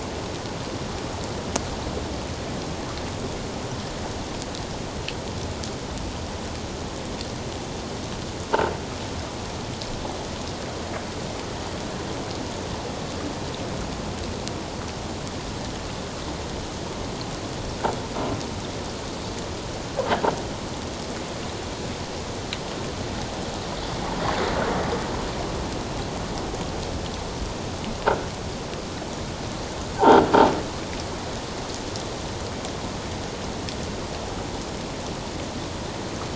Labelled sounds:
30.0	30.3	croaking sound likely from a nearby submerged object, 1.3 to 1.6 kHz

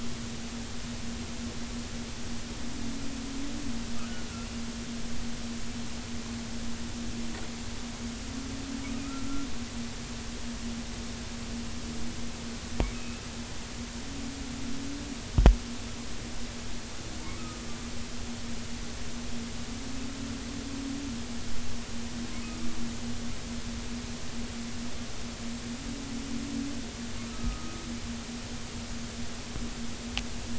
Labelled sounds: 12.9	13.2	humpback whale, 2.4 to 2.7 kHz
17.4	17.6	humpback whale, 1.2 to 1.4 kHz
27.3	27.8	humpback whale, 1.2 to 1.3 kHz

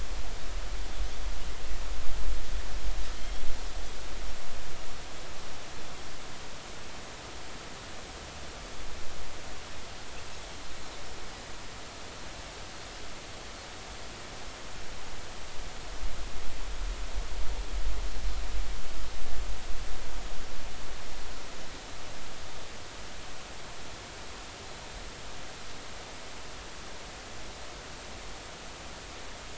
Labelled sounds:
3.2	3.4	Pacific white-sided dolphin, 3.1 to 3.4 kHz

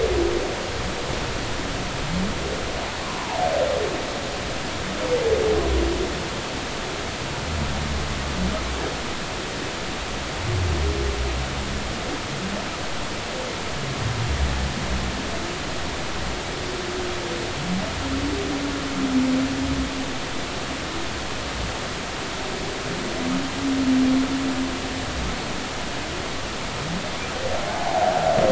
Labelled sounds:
3.0	3.4	humpback whale, 0.80 to 1.2 kHz
27.7	28.1	humpback whale, 0.80 to 0.93 kHz

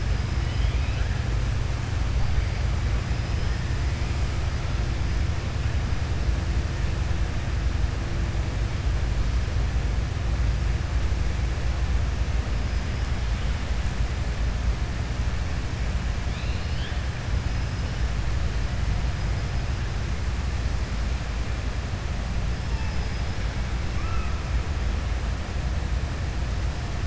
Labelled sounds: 16.2	17.0	killer whale, southern resident, 2.4 to 5.2 kHz
23.9	24.3	killer whale, southern resident, 1.1 to 2.7 kHz

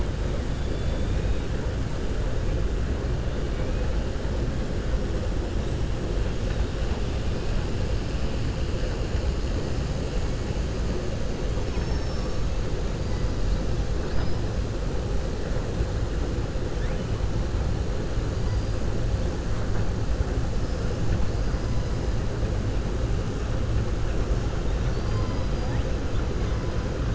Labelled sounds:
0.6	1.5	killer whale, southern resident, 2.2 to 4.2 kHz
11.6	12.4	killer whale, southern resident, 4.5 to 6.4 kHz

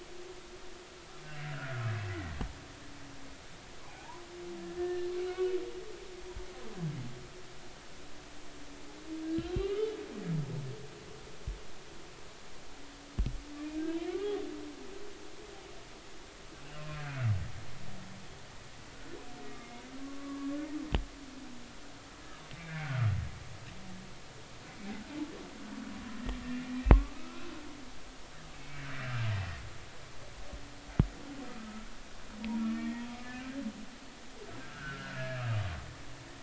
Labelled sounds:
1.4	1.8	humpback whale, 1.3 to 1.8 kHz
2.1	2.3	humpback whale, 1.8 to 2.1 kHz
3.8	4.2	humpback whale, 0.80 to 1.2 kHz
4.8	5.6	humpback whale, 1.4 to 3.0 kHz
9.4	9.9	humpback whale, 1.1 to 3.2 kHz
14.1	14.4	humpback whale, 1.1 to 1.2 kHz
16.8	17.0	humpback whale, 2.4 to 2.6 kHz
19.4	19.7	humpback whale, 1.15 to 1.25 kHz
20.0	20.6	humpback whale, 1.1 to 1.2 kHz
22.6	23.1	humpback whale, 1.2 to 2.4 kHz
26.9	27.5	humpback whale, 1.0 to 1.6 kHz
28.5	28.8	humpback whale, 2.1 to 2.3 kHz
29.3	29.6	humpback whale, 1.8 to 2.0 kHz
31.6	31.9	humpback whale, 1.2 to 1.4 kHz
32.6	33.6	humpback whale, 1.1 to 2.0 kHz
34.6	35.6	humpback whale, 1.1 to 1.8 kHz

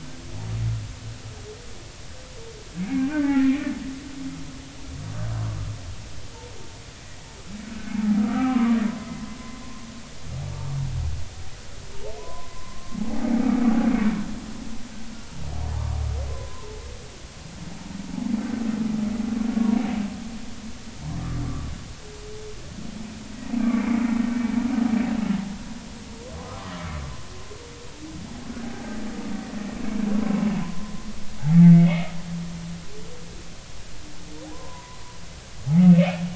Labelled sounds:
2.8	3.7	humpback whale, 0.80 to 2.5 kHz
8.2	9.9	humpback whale, 0.90 to 2.1 kHz
13.1	14.0	humpback whale, 0.80 to 1.1 kHz
16.3	16.7	humpback whale, 0.93 to 1.1 kHz
19.5	19.8	humpback whale, 0.90 to 1.2 kHz
23.6	24.1	humpback whale, 2.0 to 2.4 kHz
30.6	31.0	humpback whale, 0.86 to 1.1 kHz
31.7	32.2	humpback whale, 1.1 to 2.3 kHz
34.5	35.0	humpback whale, 0.90 to 1.1 kHz
35.8	36.2	humpback whale, 2.4 to 2.7 kHz

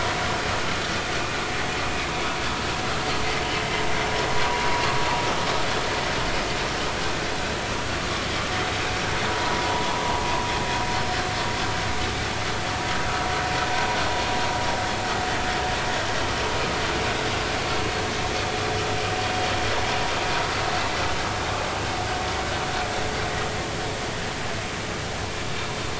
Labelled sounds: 9.3	10.2	vessel noise, 0.80 to 1.1 kHz

